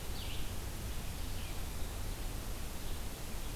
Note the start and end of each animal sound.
[0.00, 3.55] Red-eyed Vireo (Vireo olivaceus)

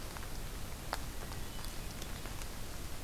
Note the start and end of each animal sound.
[1.12, 2.12] Hermit Thrush (Catharus guttatus)

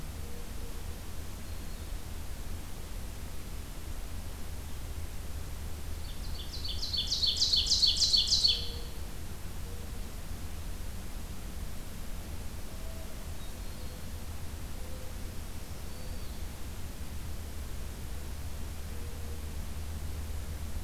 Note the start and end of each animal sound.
[1.39, 1.99] Black-throated Green Warbler (Setophaga virens)
[5.90, 8.90] Ovenbird (Seiurus aurocapilla)
[12.58, 16.42] Mourning Dove (Zenaida macroura)
[15.53, 16.38] Black-throated Green Warbler (Setophaga virens)

